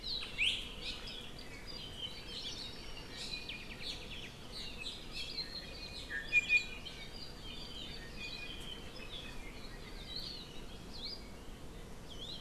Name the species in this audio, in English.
Hawaii Amakihi, Iiwi, Apapane